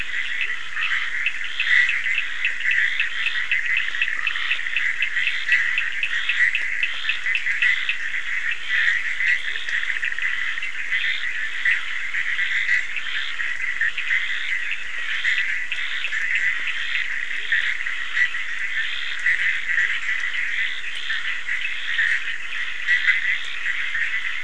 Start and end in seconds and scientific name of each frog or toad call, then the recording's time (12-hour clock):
0.0	24.4	Boana bischoffi
0.0	24.4	Scinax perereca
0.0	24.4	Sphaenorhynchus surdus
0.4	0.6	Leptodactylus latrans
9.4	9.7	Leptodactylus latrans
17.3	17.6	Leptodactylus latrans
19.8	20.0	Leptodactylus latrans
3:45am